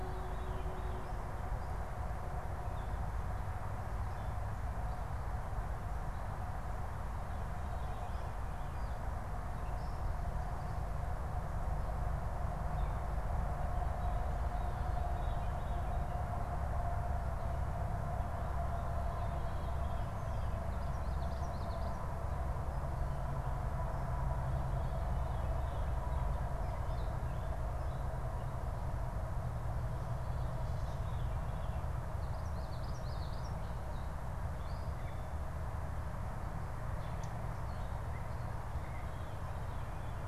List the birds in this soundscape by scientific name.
Geothlypis trichas, Catharus fuscescens, Dumetella carolinensis